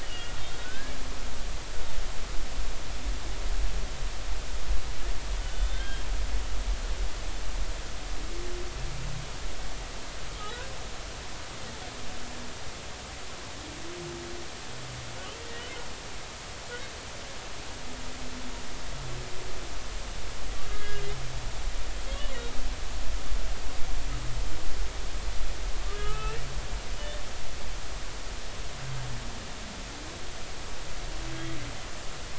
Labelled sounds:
0.0	1.0	humpback whale, 1.4 to 3.0 kHz
5.4	6.1	humpback whale, 1.4 to 3.7 kHz
20.7	21.1	humpback whale, 1.6 to 1.7 kHz
25.9	26.4	humpback whale, 1.2 to 3.0 kHz

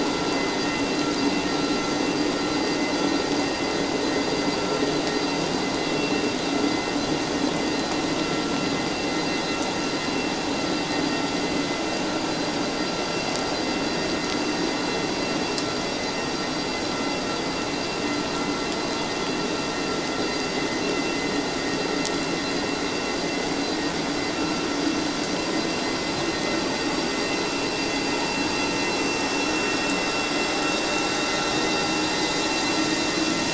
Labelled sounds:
5.9	6.2	vessel noise, 2.7 to 2.8 kHz

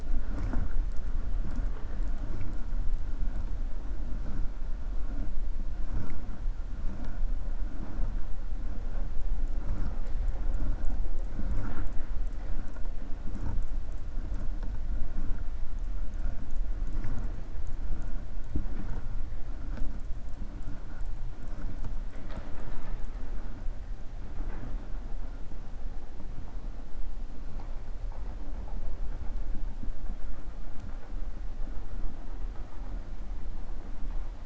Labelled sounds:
22.0	23.0	killer whale, 0.39 to 5.3 kHz

